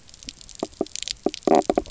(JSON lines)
{"label": "biophony, knock croak", "recorder": "SoundTrap 300"}